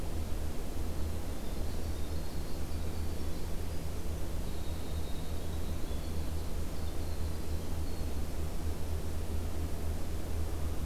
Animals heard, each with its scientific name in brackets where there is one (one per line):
Winter Wren (Troglodytes hiemalis)